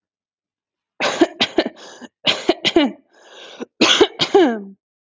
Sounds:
Cough